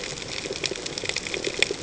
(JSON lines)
{"label": "ambient", "recorder": "HydroMoth"}